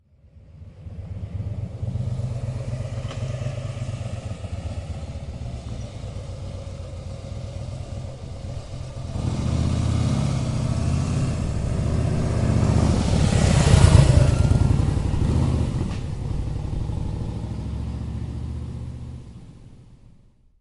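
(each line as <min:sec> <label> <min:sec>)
0:00.0 A motorcycle with a deep, rumbling V2 engine sound approaches from a distance and gradually slows down. 0:09.1
0:03.1 A small branch crunches sharply under wheels. 0:03.6
0:09.1 A V2 engine motorcycle slowly accelerates, passes by at a steady speed, and gradually fades into the distance. 0:20.6
0:15.9 A small branch crunches sharply under wheels. 0:16.6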